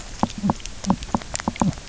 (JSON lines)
{"label": "biophony", "recorder": "SoundTrap 300"}